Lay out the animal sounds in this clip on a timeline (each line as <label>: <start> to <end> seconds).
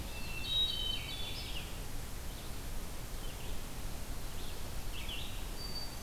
Hermit Thrush (Catharus guttatus): 0.0 to 1.8 seconds
Red-eyed Vireo (Vireo olivaceus): 0.0 to 6.0 seconds